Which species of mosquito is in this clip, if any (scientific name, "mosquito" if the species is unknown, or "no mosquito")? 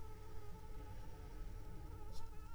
Anopheles arabiensis